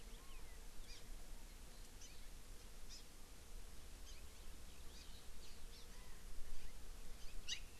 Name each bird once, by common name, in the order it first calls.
Hawaii Amakihi